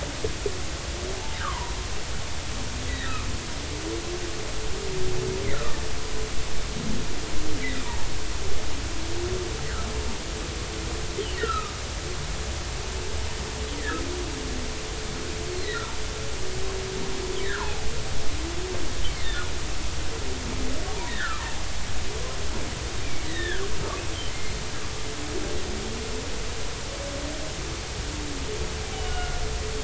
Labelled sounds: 1.4	1.7	humpback whale, 0.90 to 1.7 kHz
5.5	5.8	humpback whale, 1.1 to 1.5 kHz
9.6	9.9	humpback whale, 1.2 to 2.0 kHz
11.4	11.7	humpback whale, 1.2 to 3.0 kHz
13.8	14.0	humpback whale, 1.2 to 2.1 kHz
17.4	17.8	humpback whale, 0.80 to 2.0 kHz
21.1	21.4	humpback whale, 1.1 to 2.0 kHz
23.0	23.6	humpback whale, 1.4 to 3.8 kHz
24.3	24.5	humpback whale, 2.0 to 2.2 kHz
28.9	29.4	humpback whale, 1.4 to 3.1 kHz

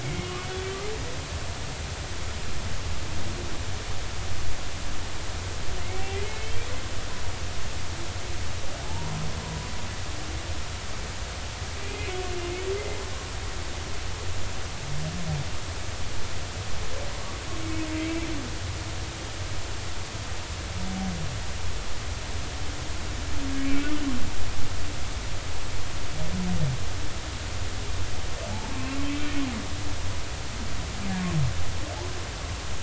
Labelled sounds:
0.0	0.3	humpback whale, 2.0 to 2.3 kHz
5.8	6.5	humpback whale, 2.0 to 2.4 kHz
8.8	9.7	humpback whale, 0.80 to 1.1 kHz
11.8	12.1	humpback whale, 2.4 to 2.6 kHz
18.0	18.3	humpback whale, 2.2 to 2.4 kHz

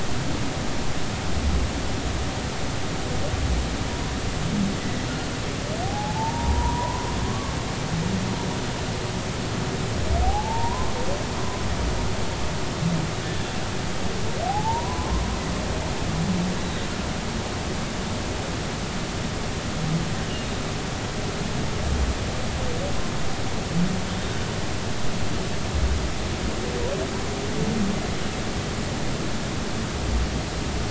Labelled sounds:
4.8	7.6	humpback whale, 0.80 to 2.0 kHz
10.2	10.9	humpback whale, 0.80 to 1.1 kHz
14.5	15.2	humpback whale, 0.80 to 1.1 kHz
16.6	16.8	humpback whale, 3.8 to 4.0 kHz
24.1	24.4	humpback whale, 3.6 to 3.7 kHz

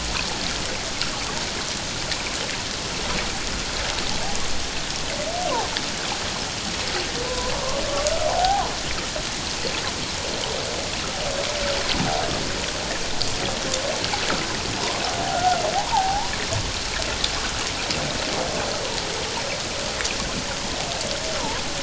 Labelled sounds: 7.3	7.8	humpback whale, 0.94 to 1.2 kHz
8.3	8.7	humpback whale, 0.78 to 1.1 kHz
15.3	16.3	humpback whale, 0.78 to 1.5 kHz

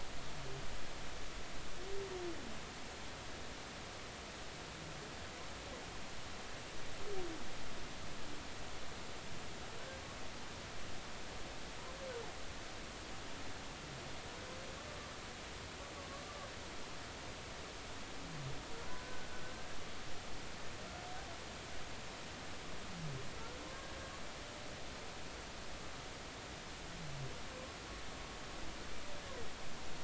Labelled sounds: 18.9	19.8	humpback whale, 1.4 to 1.7 kHz
23.7	24.0	humpback whale, 1.6 to 1.8 kHz

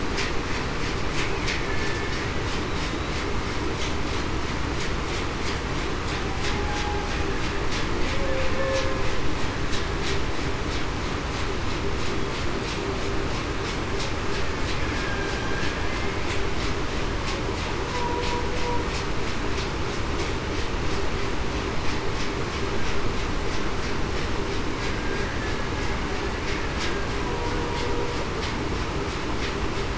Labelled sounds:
1.6	2.1	killer whale, Bigg's (transient), 1.7 to 1.8 kHz
6.5	7.0	humpback whale, 0.82 to 0.89 kHz
8.1	8.9	humpback whale, 0.49 to 0.56 kHz
8.5	8.9	killer whale, Bigg's (transient), 1.7 to 1.8 kHz
24.9	25.3	killer whale, Bigg's (transient), 1.6 to 1.7 kHz

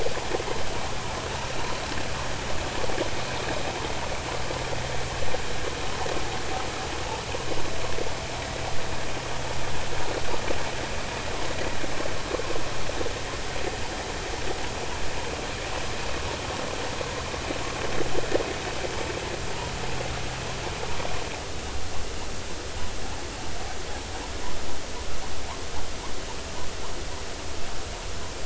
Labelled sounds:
8.4	8.6	vessel noise, 1.8 to 2.0 kHz

